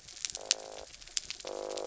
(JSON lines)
{"label": "biophony", "recorder": "SoundTrap 300"}